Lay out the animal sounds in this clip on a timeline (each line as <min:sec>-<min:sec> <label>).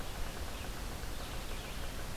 0:00.0-0:02.2 Red-eyed Vireo (Vireo olivaceus)
0:00.0-0:02.2 Yellow-bellied Sapsucker (Sphyrapicus varius)